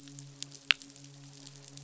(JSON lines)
{"label": "biophony, midshipman", "recorder": "SoundTrap 500"}